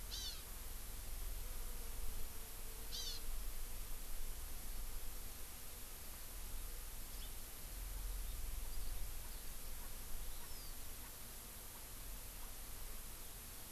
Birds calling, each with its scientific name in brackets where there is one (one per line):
House Finch (Haemorhous mexicanus)
Hawaii Amakihi (Chlorodrepanis virens)
Erckel's Francolin (Pternistis erckelii)
Eurasian Skylark (Alauda arvensis)